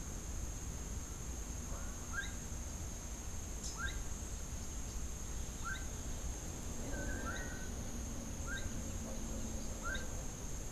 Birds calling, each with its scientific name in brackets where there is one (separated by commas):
Rufous-capped Warbler (Basileuterus rufifrons), Gray-headed Chachalaca (Ortalis cinereiceps), Long-tailed Manakin (Chiroxiphia linearis)